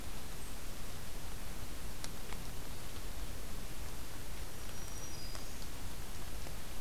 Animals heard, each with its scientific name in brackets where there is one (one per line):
Black-throated Green Warbler (Setophaga virens)